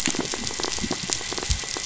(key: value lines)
label: biophony, pulse
recorder: SoundTrap 500

label: anthrophony, boat engine
recorder: SoundTrap 500